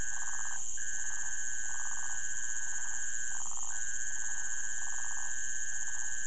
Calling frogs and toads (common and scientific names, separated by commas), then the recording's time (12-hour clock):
waxy monkey tree frog (Phyllomedusa sauvagii)
4:00am